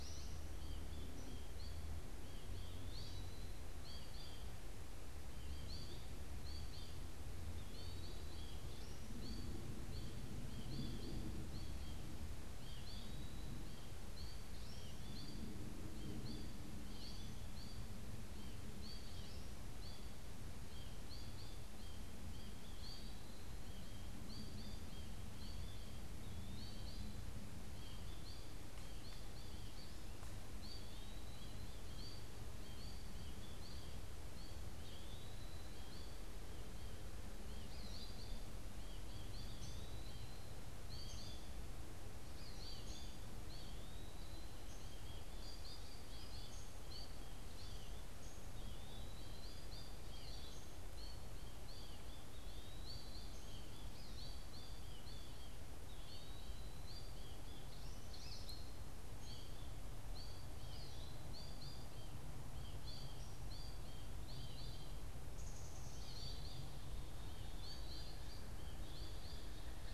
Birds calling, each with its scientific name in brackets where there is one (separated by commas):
Black-capped Chickadee (Poecile atricapillus), American Goldfinch (Spinus tristis), Eastern Wood-Pewee (Contopus virens), Downy Woodpecker (Dryobates pubescens)